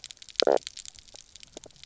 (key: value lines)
label: biophony, knock croak
recorder: SoundTrap 300